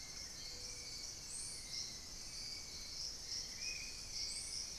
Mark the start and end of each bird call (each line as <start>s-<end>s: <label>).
0.0s-0.6s: Buff-throated Woodcreeper (Xiphorhynchus guttatus)
0.0s-4.8s: Hauxwell's Thrush (Turdus hauxwelli)
3.4s-4.8s: Spot-winged Antshrike (Pygiptila stellaris)